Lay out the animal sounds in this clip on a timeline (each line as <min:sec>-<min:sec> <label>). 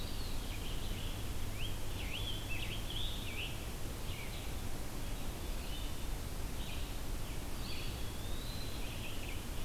0:00.0-0:00.6 Eastern Wood-Pewee (Contopus virens)
0:00.0-0:09.6 Red-eyed Vireo (Vireo olivaceus)
0:00.5-0:04.1 Scarlet Tanager (Piranga olivacea)
0:07.4-0:09.1 Eastern Wood-Pewee (Contopus virens)